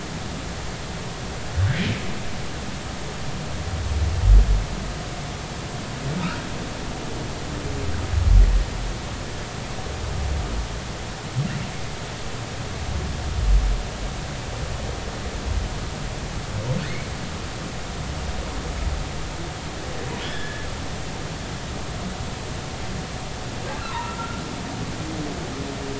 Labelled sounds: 6.2	6.4	humpback whale, 1.2 to 1.7 kHz
20.2	20.7	humpback whale, 1.6 to 3.6 kHz
23.9	24.4	humpback whale, 0.86 to 1.4 kHz

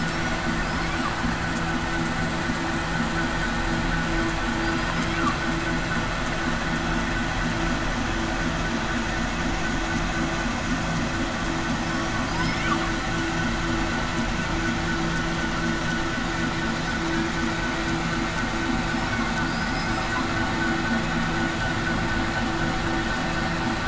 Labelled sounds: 0.6	1.0	killer whale, southern resident, 4.9 to 5.3 kHz
19.5	20.1	killer whale, southern resident, 4.6 to 5.1 kHz

